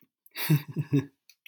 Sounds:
Laughter